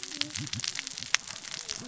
{"label": "biophony, cascading saw", "recorder": "SoundTrap 600 or HydroMoth"}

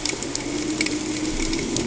{"label": "anthrophony, boat engine", "recorder": "HydroMoth"}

